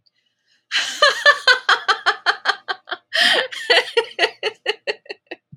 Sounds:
Laughter